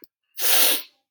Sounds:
Sniff